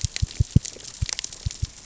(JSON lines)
{"label": "biophony, knock", "recorder": "SoundTrap 600 or HydroMoth"}